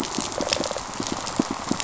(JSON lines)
{"label": "biophony, rattle response", "recorder": "SoundTrap 500"}
{"label": "biophony, pulse", "recorder": "SoundTrap 500"}